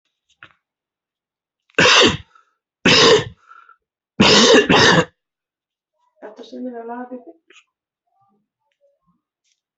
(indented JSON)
{
  "expert_labels": [
    {
      "quality": "ok",
      "cough_type": "unknown",
      "dyspnea": false,
      "wheezing": false,
      "stridor": false,
      "choking": false,
      "congestion": false,
      "nothing": true,
      "diagnosis": "lower respiratory tract infection",
      "severity": "mild"
    }
  ],
  "age": 45,
  "gender": "male",
  "respiratory_condition": false,
  "fever_muscle_pain": false,
  "status": "symptomatic"
}